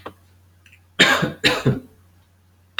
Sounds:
Cough